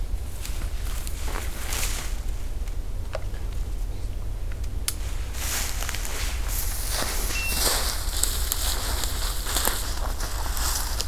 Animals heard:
forest ambience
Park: Acadia National Park